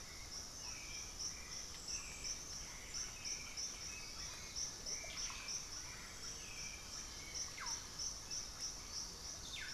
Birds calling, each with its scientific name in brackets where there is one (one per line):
Chestnut-winged Foliage-gleaner (Dendroma erythroptera)
Hauxwell's Thrush (Turdus hauxwelli)
Russet-backed Oropendola (Psarocolius angustifrons)
White-winged Becard (Pachyramphus polychopterus)